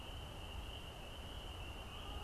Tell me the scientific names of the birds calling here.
Branta canadensis